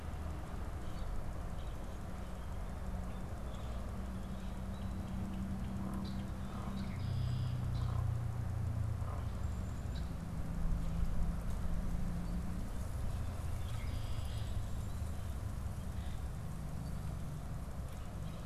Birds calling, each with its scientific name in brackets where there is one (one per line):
Red-winged Blackbird (Agelaius phoeniceus)